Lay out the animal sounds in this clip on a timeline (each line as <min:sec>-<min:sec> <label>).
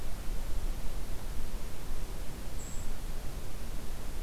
0:02.1-0:03.2 Brown Creeper (Certhia americana)